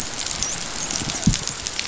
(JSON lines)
{"label": "biophony, dolphin", "recorder": "SoundTrap 500"}